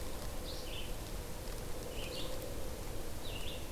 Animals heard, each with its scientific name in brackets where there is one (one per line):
Red-eyed Vireo (Vireo olivaceus)